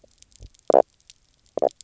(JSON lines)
{"label": "biophony, knock croak", "recorder": "SoundTrap 300"}